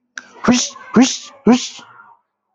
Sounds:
Sniff